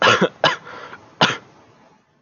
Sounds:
Cough